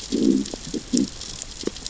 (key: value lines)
label: biophony, growl
recorder: SoundTrap 600 or HydroMoth